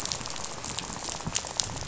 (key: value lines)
label: biophony, rattle
recorder: SoundTrap 500